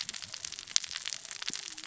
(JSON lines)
{"label": "biophony, cascading saw", "recorder": "SoundTrap 600 or HydroMoth"}